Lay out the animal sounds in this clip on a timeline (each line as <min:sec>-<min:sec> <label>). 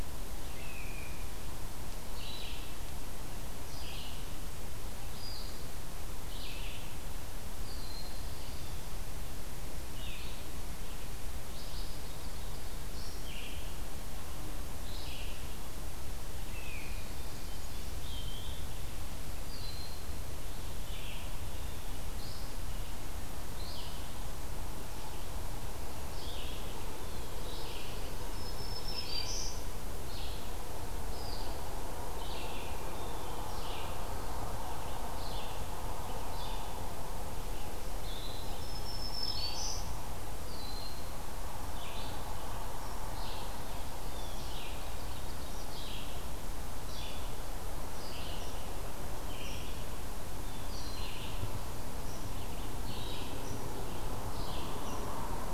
0:00.0-0:28.0 Red-eyed Vireo (Vireo olivaceus)
0:00.3-0:01.3 Blue Jay (Cyanocitta cristata)
0:07.4-0:08.3 Broad-winged Hawk (Buteo platypterus)
0:16.4-0:17.0 Great Crested Flycatcher (Myiarchus crinitus)
0:17.9-0:18.7 Eastern Wood-Pewee (Contopus virens)
0:19.4-0:20.2 Broad-winged Hawk (Buteo platypterus)
0:27.0-0:27.4 Blue Jay (Cyanocitta cristata)
0:28.0-0:29.9 Black-throated Green Warbler (Setophaga virens)
0:30.0-0:55.5 Red-eyed Vireo (Vireo olivaceus)
0:32.9-0:33.5 Blue Jay (Cyanocitta cristata)
0:38.2-0:40.3 Black-throated Green Warbler (Setophaga virens)
0:40.4-0:41.0 Broad-winged Hawk (Buteo platypterus)
0:43.8-0:44.5 Blue Jay (Cyanocitta cristata)
0:43.9-0:45.7 Ovenbird (Seiurus aurocapilla)